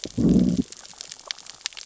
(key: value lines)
label: biophony, growl
recorder: SoundTrap 600 or HydroMoth